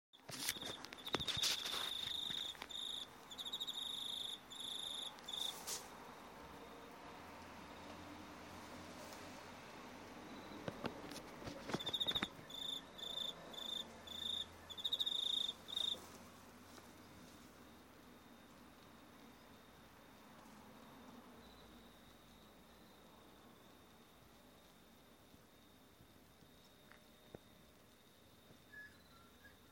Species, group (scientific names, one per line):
Teleogryllus commodus
Orthoptera